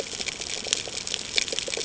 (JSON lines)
{"label": "ambient", "recorder": "HydroMoth"}